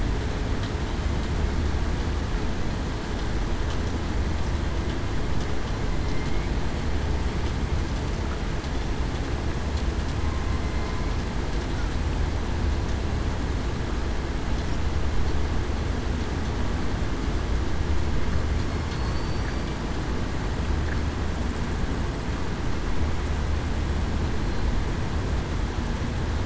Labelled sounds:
18.9	19.7	killer whale, southern resident, 4.3 to 4.7 kHz

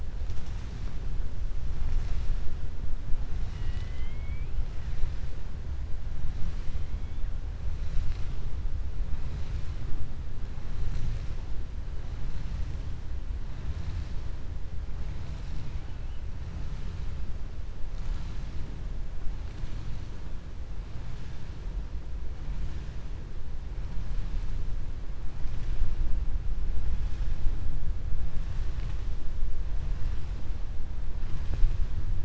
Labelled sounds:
3.3	4.5	killer whale, southern resident, 1.9 to 7.7 kHz

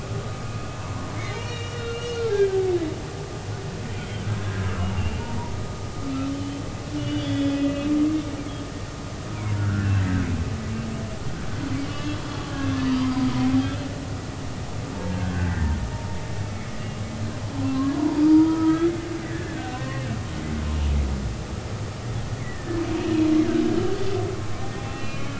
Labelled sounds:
0.8	2.7	humpback whale, 0.80 to 4.4 kHz
4.0	5.5	humpback whale, 0.90 to 3.3 kHz
6.3	6.6	humpback whale, 2.9 to 3.2 kHz
7.0	7.9	humpback whale, 1.9 to 4.8 kHz
9.3	9.9	humpback whale, 0.90 to 1.8 kHz
11.8	12.2	humpback whale, 1.1 to 3.4 kHz
13.0	13.9	humpback whale, 2.4 to 5.0 kHz
15.3	15.7	humpback whale, 1.5 to 2.0 kHz
16.5	16.7	humpback whale, 2.1 to 2.3 kHz
17.7	18.9	humpback whale, 0.86 to 1.4 kHz
19.3	20.1	humpback whale, 0.96 to 2.7 kHz
22.4	22.8	humpback whale, 1.7 to 2.3 kHz
24.8	25.3	humpback whale, 2.4 to 3.1 kHz

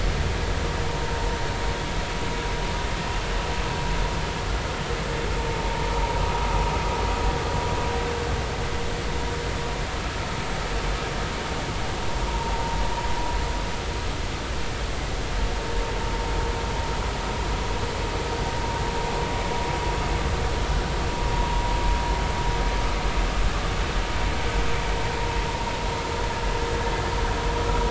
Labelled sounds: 12.3	12.5	vessel noise, 0.86 to 1.1 kHz

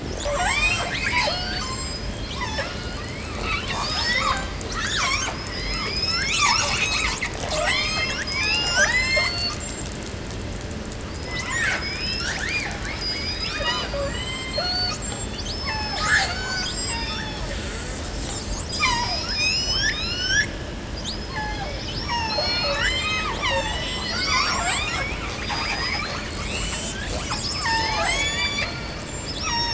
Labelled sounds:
0.0	2.1	killer whale, 0.33 to 8.0 kHz
2.1	3.0	killer whale, southern resident, call S36, 0.35 to 7.5 kHz
3.0	5.5	killer whale, 0.31 to 8.0 kHz
5.5	6.5	killer whale, southern resident, call S19, 0.36 to 8.0 kHz
6.1	7.8	killer whale, southern resident, call S10, 0.17 to 8.0 kHz
7.5	9.3	killer whale, southern resident, 0.23 to 8.0 kHz
9.0	10.0	killer whale, southern resident, J pod, call S42, 0.30 to 8.0 kHz
11.0	17.6	killer whale, southern resident, 0.40 to 8.0 kHz
11.7	12.4	killer whale, southern resident, call S19, 0.33 to 7.7 kHz
12.8	13.6	killer whale, southern resident, call S19, 0.71 to 8.0 kHz
13.9	14.7	killer whale, southern resident, J pod, call S44, 0.50 to 8.0 kHz
14.5	15.4	killer whale, southern resident, J pod, call S42, 0.31 to 8.0 kHz
15.4	17.6	killer whale, southern resident, call S36, 0.41 to 6.0 kHz
16.3	17.2	killer whale, southern resident, J pod, call S42, 0.23 to 8.0 kHz
17.3	19.0	killer whale, southern resident, call S10, 0.51 to 8.0 kHz
18.6	19.4	killer whale, southern resident, call S36, 0.40 to 7.6 kHz
19.2	20.6	killer whale, southern resident, call S19, 0.60 to 8.0 kHz
20.9	22.6	killer whale, southern resident, call S36, 0.36 to 8.0 kHz
22.3	23.1	killer whale, southern resident, 0.41 to 8.0 kHz
23.2	24.0	killer whale, southern resident, call S36, 0.38 to 8.0 kHz
24.1	25.1	killer whale, southern resident, 0.27 to 8.0 kHz
25.3	27.2	killer whale, southern resident, call S19, 0.50 to 8.0 kHz
26.2	28.2	killer whale, southern resident, call S10, 0.33 to 8.0 kHz
27.2	28.2	killer whale, southern resident, call S36, 0.56 to 8.0 kHz
28.0	28.8	killer whale, southern resident, call S19, 0.36 to 8.0 kHz
29.2	29.7	killer whale, southern resident, call S36, 0.30 to 8.0 kHz

